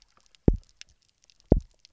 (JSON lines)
{"label": "biophony, double pulse", "recorder": "SoundTrap 300"}